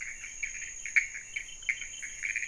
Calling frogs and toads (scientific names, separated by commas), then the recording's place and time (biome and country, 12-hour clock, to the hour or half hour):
Leptodactylus podicipinus, Pithecopus azureus
Cerrado, Brazil, 1:30am